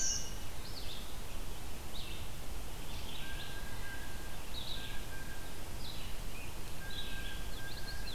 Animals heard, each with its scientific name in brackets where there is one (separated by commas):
Blue Jay (Cyanocitta cristata), Song Sparrow (Melospiza melodia), Red-eyed Vireo (Vireo olivaceus), Black-throated Green Warbler (Setophaga virens), Common Yellowthroat (Geothlypis trichas)